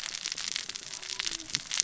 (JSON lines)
{"label": "biophony, cascading saw", "recorder": "SoundTrap 600 or HydroMoth"}